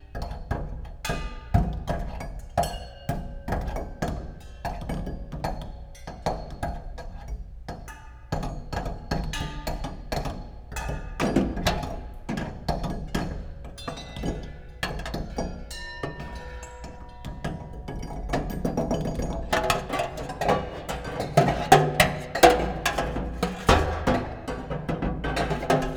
Does this have a melody?
no